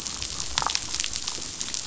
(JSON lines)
{"label": "biophony, damselfish", "recorder": "SoundTrap 500"}